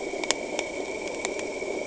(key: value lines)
label: anthrophony, boat engine
recorder: HydroMoth